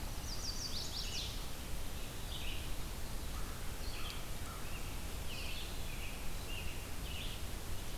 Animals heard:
Red-eyed Vireo (Vireo olivaceus), American Robin (Turdus migratorius), Chestnut-sided Warbler (Setophaga pensylvanica), American Crow (Corvus brachyrhynchos)

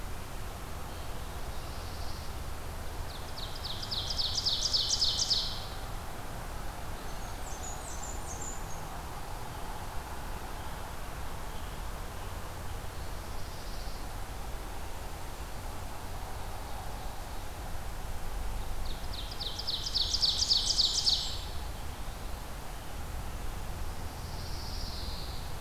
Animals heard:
Ovenbird (Seiurus aurocapilla), Pine Warbler (Setophaga pinus), Blackburnian Warbler (Setophaga fusca)

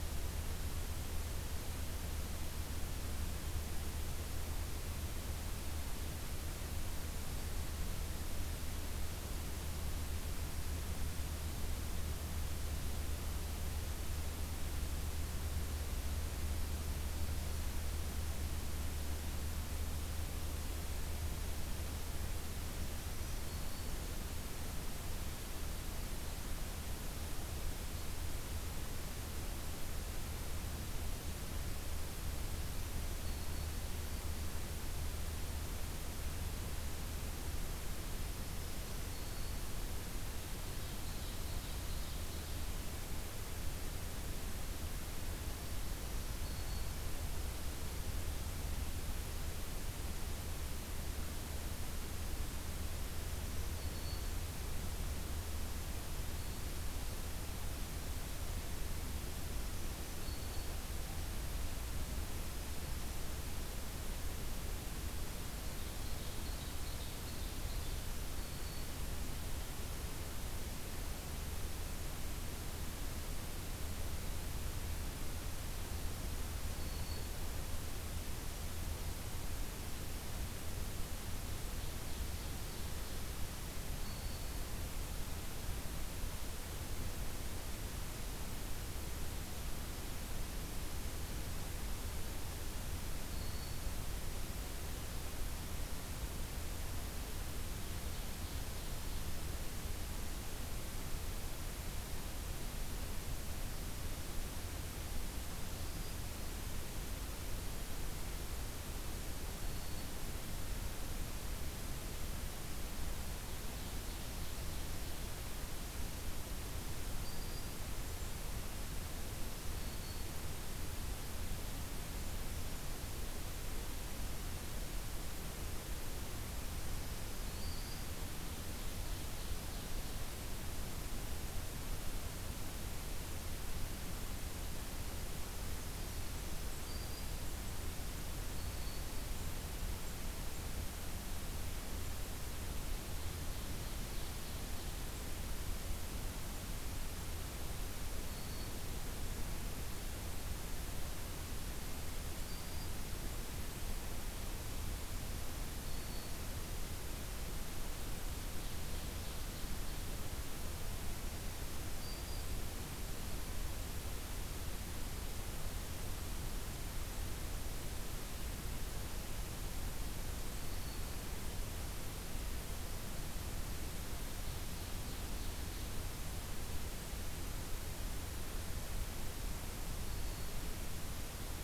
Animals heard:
Ovenbird (Seiurus aurocapilla), Black-throated Green Warbler (Setophaga virens)

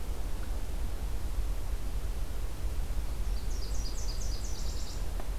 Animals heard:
Nashville Warbler (Leiothlypis ruficapilla)

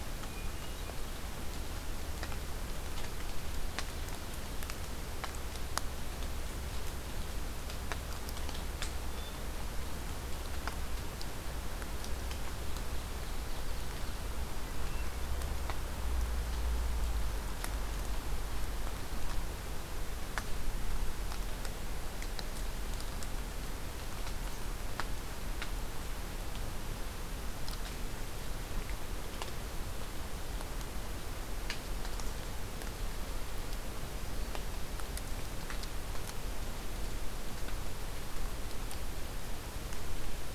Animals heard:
Ovenbird (Seiurus aurocapilla), Hermit Thrush (Catharus guttatus)

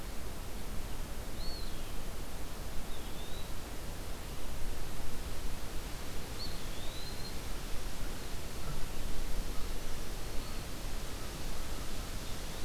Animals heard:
American Crow (Corvus brachyrhynchos), Eastern Wood-Pewee (Contopus virens), Black-throated Green Warbler (Setophaga virens)

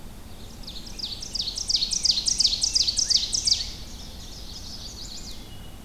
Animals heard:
Ovenbird (Seiurus aurocapilla), Black-and-white Warbler (Mniotilta varia), Wood Thrush (Hylocichla mustelina), Rose-breasted Grosbeak (Pheucticus ludovicianus), Chestnut-sided Warbler (Setophaga pensylvanica)

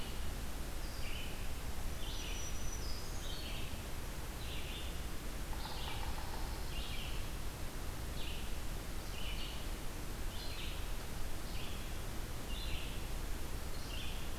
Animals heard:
Pine Warbler (Setophaga pinus), Yellow-bellied Sapsucker (Sphyrapicus varius), Black-throated Green Warbler (Setophaga virens), Red-eyed Vireo (Vireo olivaceus)

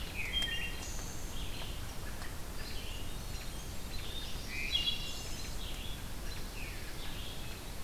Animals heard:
Wood Thrush (Hylocichla mustelina), Blackburnian Warbler (Setophaga fusca), Red-eyed Vireo (Vireo olivaceus)

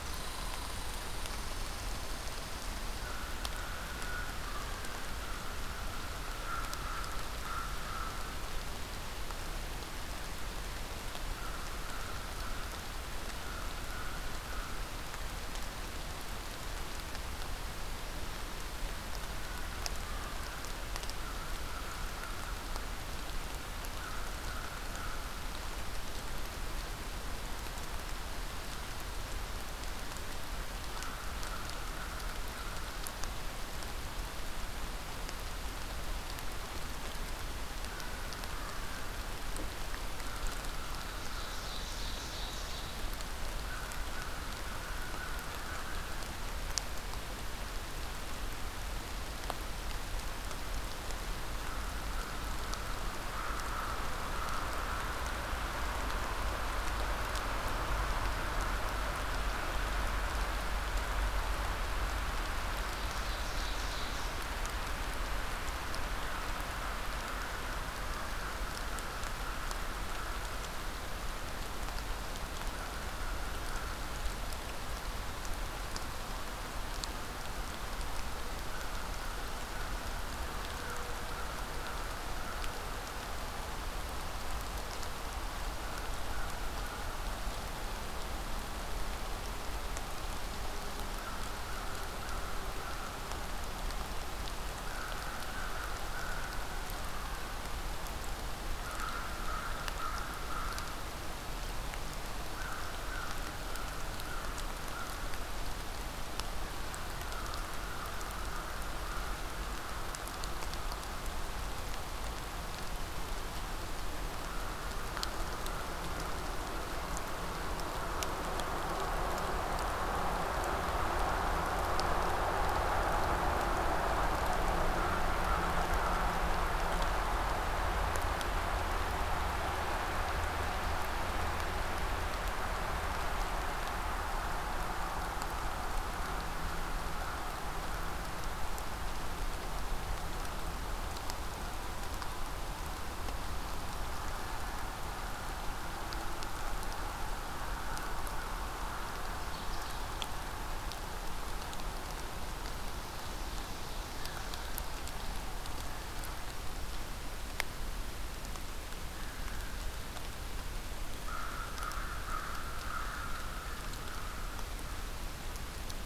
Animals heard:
Red Squirrel (Tamiasciurus hudsonicus), American Crow (Corvus brachyrhynchos), Ovenbird (Seiurus aurocapilla)

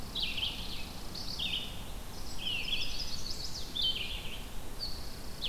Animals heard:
Chimney Swift (Chaetura pelagica), Red-eyed Vireo (Vireo olivaceus), Chipping Sparrow (Spizella passerina)

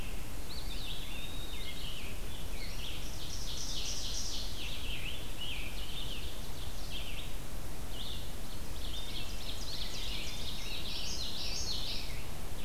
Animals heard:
Eastern Wood-Pewee (Contopus virens), Common Yellowthroat (Geothlypis trichas), Red-eyed Vireo (Vireo olivaceus), Ovenbird (Seiurus aurocapilla), Scarlet Tanager (Piranga olivacea)

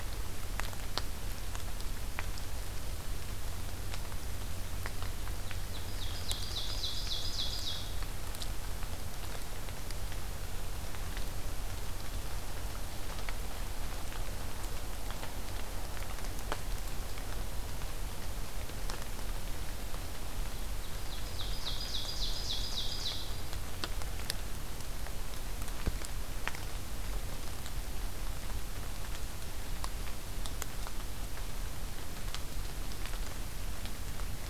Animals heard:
Ovenbird (Seiurus aurocapilla)

